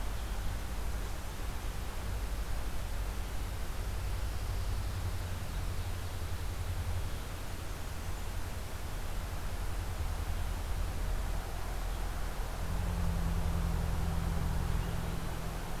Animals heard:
forest ambience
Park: Marsh-Billings-Rockefeller National Historical Park